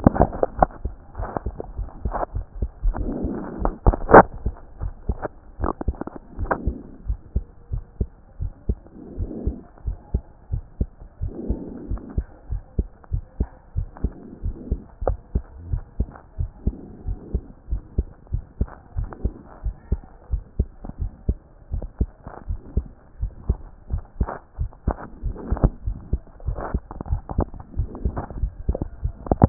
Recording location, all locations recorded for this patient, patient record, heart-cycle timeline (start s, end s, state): mitral valve (MV)
aortic valve (AV)+pulmonary valve (PV)+tricuspid valve (TV)+mitral valve (MV)
#Age: Child
#Sex: Male
#Height: 115.0 cm
#Weight: 19.8 kg
#Pregnancy status: False
#Murmur: Absent
#Murmur locations: nan
#Most audible location: nan
#Systolic murmur timing: nan
#Systolic murmur shape: nan
#Systolic murmur grading: nan
#Systolic murmur pitch: nan
#Systolic murmur quality: nan
#Diastolic murmur timing: nan
#Diastolic murmur shape: nan
#Diastolic murmur grading: nan
#Diastolic murmur pitch: nan
#Diastolic murmur quality: nan
#Outcome: Abnormal
#Campaign: 2014 screening campaign
0.00	6.38	unannotated
6.38	6.52	S1
6.52	6.66	systole
6.66	6.76	S2
6.76	7.08	diastole
7.08	7.18	S1
7.18	7.34	systole
7.34	7.44	S2
7.44	7.72	diastole
7.72	7.84	S1
7.84	7.98	systole
7.98	8.08	S2
8.08	8.40	diastole
8.40	8.52	S1
8.52	8.68	systole
8.68	8.78	S2
8.78	9.18	diastole
9.18	9.30	S1
9.30	9.46	systole
9.46	9.56	S2
9.56	9.86	diastole
9.86	9.96	S1
9.96	10.12	systole
10.12	10.22	S2
10.22	10.52	diastole
10.52	10.62	S1
10.62	10.78	systole
10.78	10.88	S2
10.88	11.22	diastole
11.22	11.32	S1
11.32	11.48	systole
11.48	11.58	S2
11.58	11.88	diastole
11.88	12.00	S1
12.00	12.16	systole
12.16	12.26	S2
12.26	12.50	diastole
12.50	12.62	S1
12.62	12.78	systole
12.78	12.86	S2
12.86	13.12	diastole
13.12	13.24	S1
13.24	13.38	systole
13.38	13.48	S2
13.48	13.76	diastole
13.76	13.88	S1
13.88	14.02	systole
14.02	14.12	S2
14.12	14.44	diastole
14.44	14.56	S1
14.56	14.70	systole
14.70	14.80	S2
14.80	15.04	diastole
15.04	15.18	S1
15.18	15.34	systole
15.34	15.44	S2
15.44	15.70	diastole
15.70	15.82	S1
15.82	15.98	systole
15.98	16.08	S2
16.08	16.38	diastole
16.38	16.50	S1
16.50	16.66	systole
16.66	16.74	S2
16.74	17.06	diastole
17.06	17.18	S1
17.18	17.32	systole
17.32	17.42	S2
17.42	17.70	diastole
17.70	17.82	S1
17.82	17.96	systole
17.96	18.06	S2
18.06	18.32	diastole
18.32	18.44	S1
18.44	18.60	systole
18.60	18.68	S2
18.68	18.96	diastole
18.96	19.08	S1
19.08	19.24	systole
19.24	19.32	S2
19.32	19.64	diastole
19.64	19.76	S1
19.76	19.90	systole
19.90	20.00	S2
20.00	20.32	diastole
20.32	20.42	S1
20.42	20.58	systole
20.58	20.68	S2
20.68	21.00	diastole
21.00	21.12	S1
21.12	21.28	systole
21.28	21.38	S2
21.38	21.72	diastole
21.72	21.84	S1
21.84	22.00	systole
22.00	22.10	S2
22.10	22.48	diastole
22.48	22.60	S1
22.60	22.76	systole
22.76	22.86	S2
22.86	23.20	diastole
23.20	23.32	S1
23.32	23.48	systole
23.48	23.58	S2
23.58	23.92	diastole
23.92	24.02	S1
24.02	24.18	systole
24.18	24.28	S2
24.28	24.60	diastole
24.60	24.70	S1
24.70	24.86	systole
24.86	24.96	S2
24.96	25.24	diastole
25.24	29.49	unannotated